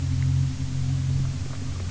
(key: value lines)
label: anthrophony, boat engine
recorder: SoundTrap 300